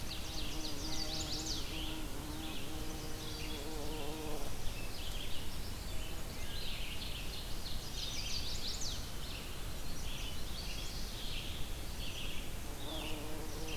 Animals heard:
Red-eyed Vireo (Vireo olivaceus), Chestnut-sided Warbler (Setophaga pensylvanica)

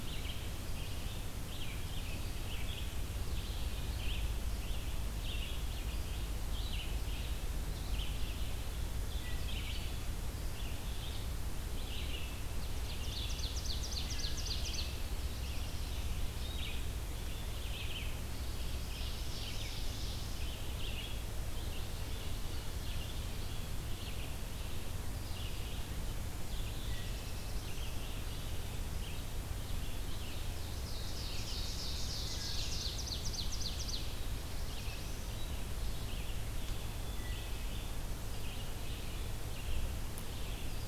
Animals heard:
Wood Thrush (Hylocichla mustelina), Ovenbird (Seiurus aurocapilla), Red-eyed Vireo (Vireo olivaceus), Black-throated Blue Warbler (Setophaga caerulescens)

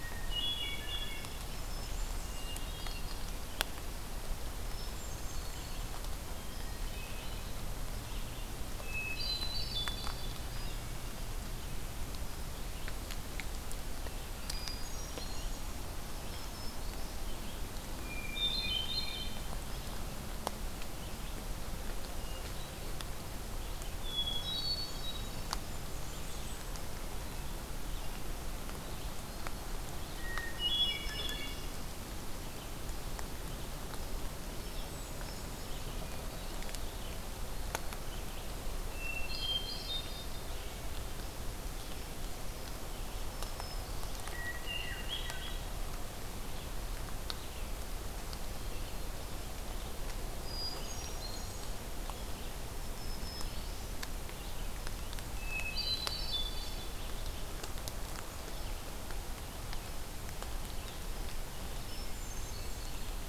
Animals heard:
Black-throated Green Warbler (Setophaga virens), Bay-breasted Warbler (Setophaga castanea), Hermit Thrush (Catharus guttatus), Red-eyed Vireo (Vireo olivaceus)

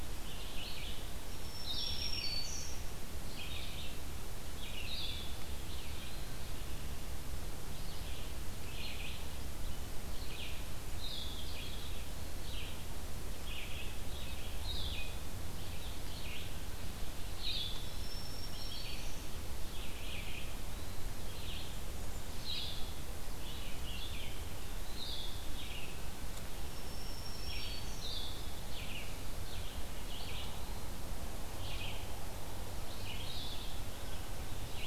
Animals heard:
Red-eyed Vireo (Vireo olivaceus), Blackburnian Warbler (Setophaga fusca), Black-throated Green Warbler (Setophaga virens), Blue-headed Vireo (Vireo solitarius), Eastern Wood-Pewee (Contopus virens)

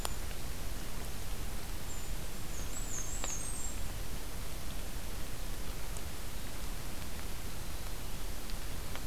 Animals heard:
Brown Creeper (Certhia americana), Black-and-white Warbler (Mniotilta varia)

